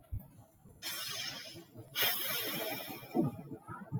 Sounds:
Sigh